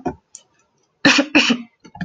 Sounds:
Cough